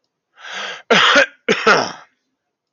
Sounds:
Cough